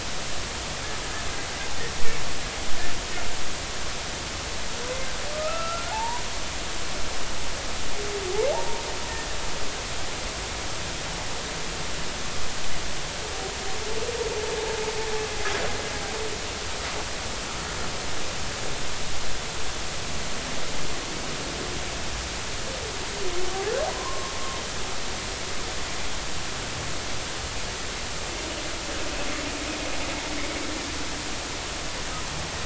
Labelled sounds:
5.3	6.2	humpback whale, 0.80 to 2.8 kHz
23.9	24.3	humpback whale, 0.93 to 1.1 kHz

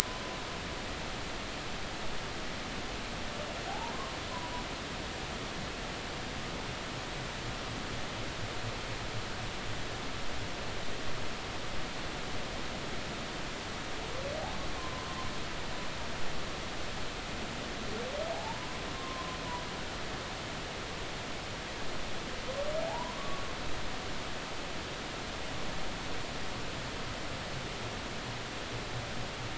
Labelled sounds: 3.7	3.9	humpback whale, 0.80 to 0.99 kHz
14.7	15.3	humpback whale, 0.96 to 1.1 kHz
18.3	19.4	humpback whale, 0.80 to 1.1 kHz
22.9	23.5	humpback whale, 0.80 to 1.2 kHz

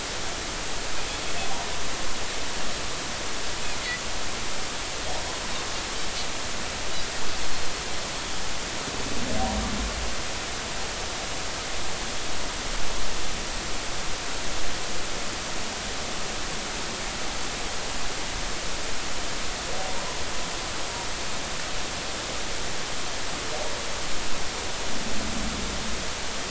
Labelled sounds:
19.9	20.2	humpback whale, 0.90 to 1.1 kHz

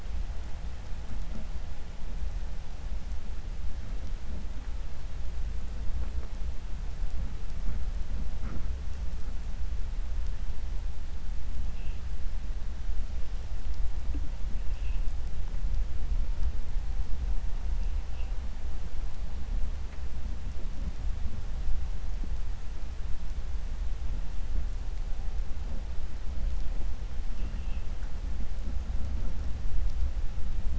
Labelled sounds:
27.3	27.8	vessel noise, 1.9 to 3.4 kHz

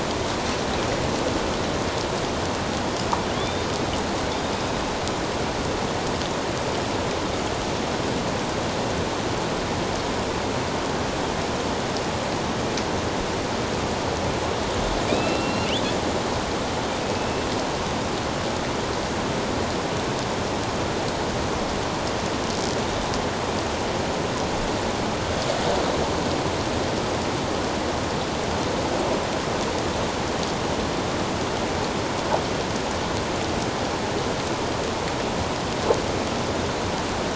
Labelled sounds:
3.4	3.7	killer whale, northern resident, A clan, AB subclan, 3.2 to 3.8 kHz
15.1	15.8	killer whale, northern resident, A clan, AB subclan, 2.3 to 3.6 kHz
17.0	17.4	killer whale, northern resident, A clan, AB subclan, 2.5 to 2.7 kHz

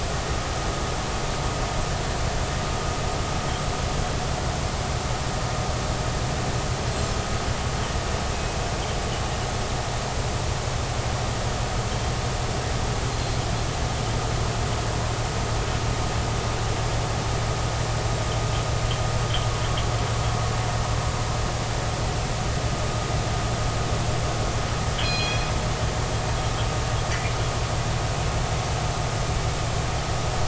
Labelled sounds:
24.9	25.4	killer whale, northern resident, G clan, call N24ii, 2.4 to 5.1 kHz

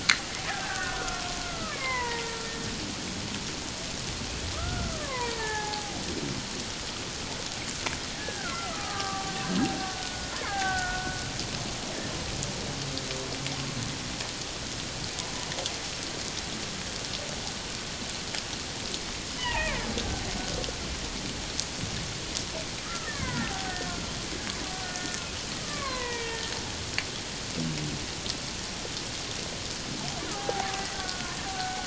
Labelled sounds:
0.5	2.2	killer whale, Bigg's (transient), 0.88 to 2.3 kHz
4.5	6.0	killer whale, Bigg's (transient), 0.78 to 2.5 kHz
8.2	11.2	killer whale, Bigg's (transient), 0.78 to 2.2 kHz
19.3	19.8	killer whale, Bigg's (transient), 0.78 to 3.1 kHz
22.8	24.0	killer whale, Bigg's (transient), 0.78 to 2.3 kHz
24.7	25.2	killer whale, Bigg's (transient), 1.4 to 1.9 kHz
25.6	26.5	killer whale, Bigg's (transient), 0.81 to 3.3 kHz
30.3	31.8	killer whale, Bigg's (transient), 0.78 to 1.6 kHz

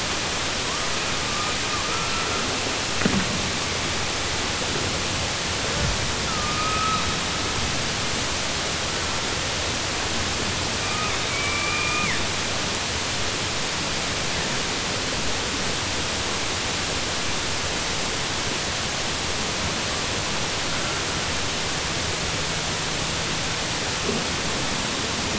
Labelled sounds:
11.2	12.2	killer whale, southern resident, 1.0 to 2.5 kHz

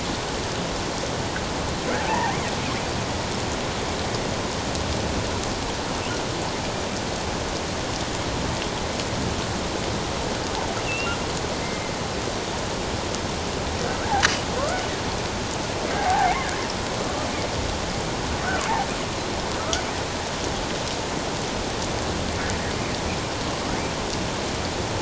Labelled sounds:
2.1	2.4	killer whale, offshore, 0.78 to 1.9 kHz
10.8	11.9	killer whale, offshore, 2.0 to 2.9 kHz
16.0	16.5	killer whale, offshore, 0.78 to 2.4 kHz

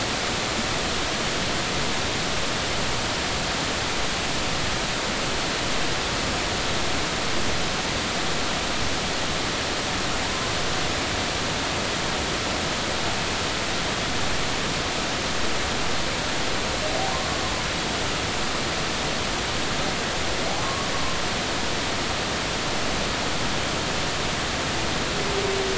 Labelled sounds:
10.2	10.5	humpback whale, 0.90 to 1.1 kHz
20.6	20.9	humpback whale, 1.0 to 1.2 kHz

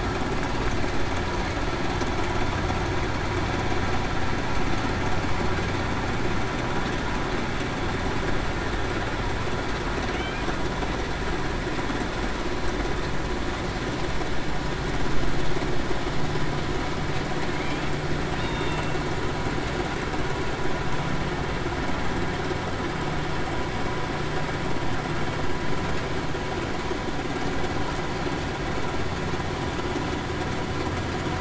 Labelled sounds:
18.4	18.8	killer whale, Bigg's (transient), 3.6 to 3.8 kHz

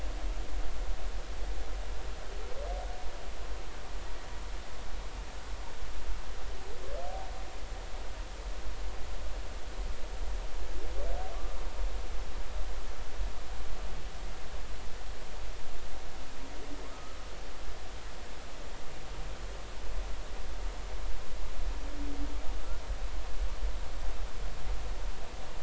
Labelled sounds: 11.3	11.6	humpback whale, 1.0 to 1.2 kHz
16.9	17.2	humpback whale, 1.2 to 1.4 kHz

